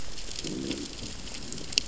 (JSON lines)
{"label": "biophony, growl", "recorder": "SoundTrap 600 or HydroMoth"}